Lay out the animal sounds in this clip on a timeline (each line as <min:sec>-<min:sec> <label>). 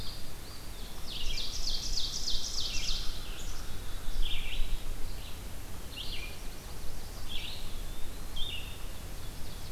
0:00.0-0:09.7 Red-eyed Vireo (Vireo olivaceus)
0:00.1-0:01.9 Eastern Wood-Pewee (Contopus virens)
0:01.0-0:03.3 Ovenbird (Seiurus aurocapilla)
0:03.3-0:04.4 Black-capped Chickadee (Poecile atricapillus)
0:06.0-0:07.4 Yellow-rumped Warbler (Setophaga coronata)
0:07.2-0:08.5 Eastern Wood-Pewee (Contopus virens)
0:09.0-0:09.7 Ovenbird (Seiurus aurocapilla)